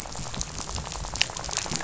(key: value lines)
label: biophony, rattle
recorder: SoundTrap 500